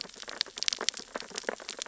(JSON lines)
{"label": "biophony, sea urchins (Echinidae)", "recorder": "SoundTrap 600 or HydroMoth"}